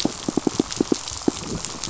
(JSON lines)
{"label": "biophony, pulse", "recorder": "SoundTrap 500"}